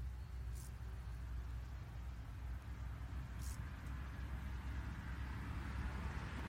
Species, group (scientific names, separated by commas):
Chorthippus brunneus, Orthoptera